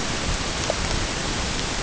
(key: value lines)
label: ambient
recorder: HydroMoth